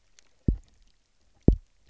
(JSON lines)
{"label": "biophony, double pulse", "recorder": "SoundTrap 300"}